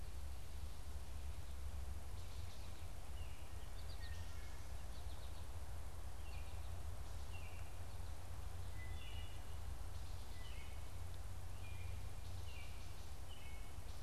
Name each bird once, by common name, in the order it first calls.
American Goldfinch, Baltimore Oriole, Wood Thrush